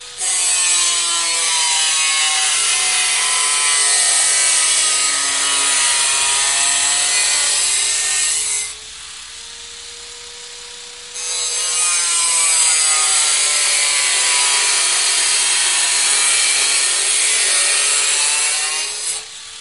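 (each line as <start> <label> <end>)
0.0 A builder is sawing metal with a hand circular saw, producing a high-pitched grinding noise. 9.3
10.9 A builder is sawing metal with a hand circular saw, producing a high-pitched grinding noise. 19.6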